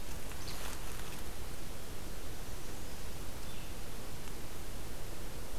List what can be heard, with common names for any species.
Least Flycatcher